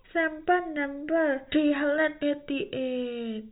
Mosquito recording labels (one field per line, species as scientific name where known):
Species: no mosquito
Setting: cup